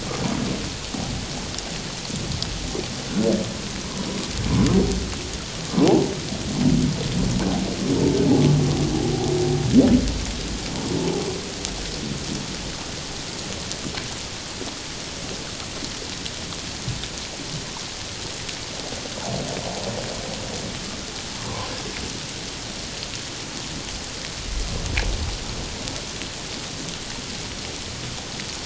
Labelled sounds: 5.7	6.1	humpback whale, 0.78 to 1.1 kHz

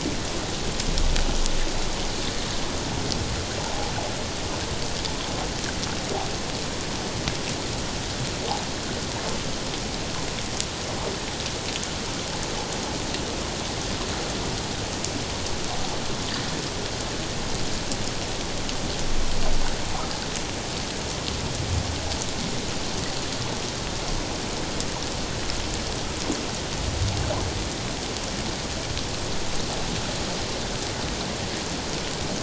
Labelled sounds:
3.6	3.9	water noise, 0.78 to 0.97 kHz

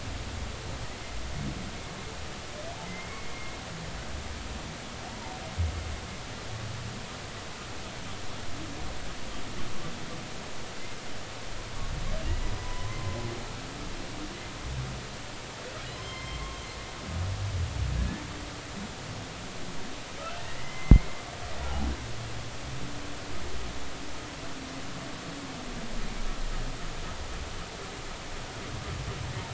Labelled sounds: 2.8	3.3	humpback whale, 2.0 to 2.2 kHz
5.1	5.3	humpback whale, 0.83 to 0.99 kHz
12.6	13.2	humpback whale, 0.96 to 1.1 kHz
15.8	16.6	humpback whale, 0.99 to 5.3 kHz
20.4	21.1	humpback whale, 1.8 to 2.3 kHz

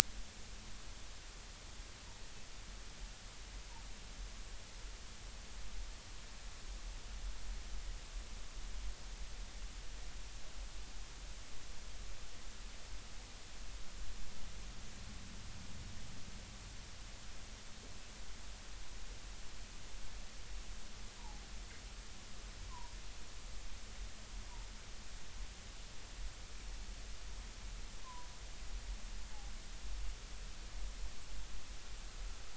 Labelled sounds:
22.7	23.0	humpback whale, 0.90 to 1.1 kHz
28.0	28.3	humpback whale, 0.93 to 1.1 kHz

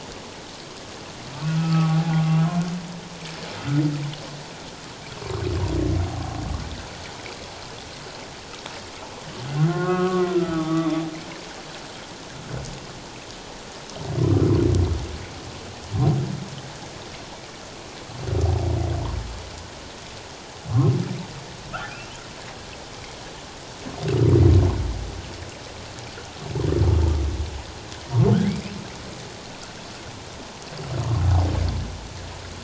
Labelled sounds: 1.4	2.2	humpback whale, 0.78 to 2.7 kHz
9.6	11.0	humpback whale, 1.0 to 3.6 kHz
21.7	22.1	humpback whale, 1.2 to 2.8 kHz

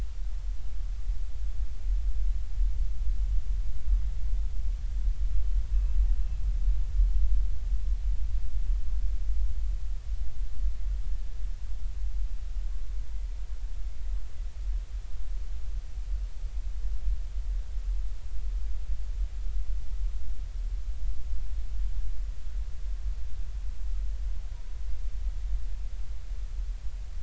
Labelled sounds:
5.7	6.0	killer whale, Bigg's (transient), 2.5 to 2.7 kHz

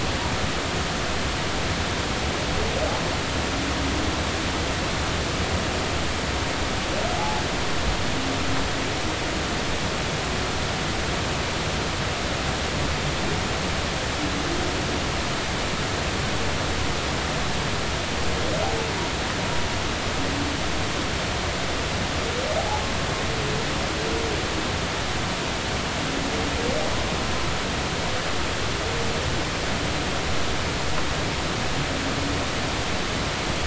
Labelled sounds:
7.2	7.4	humpback whale, 0.80 to 0.93 kHz

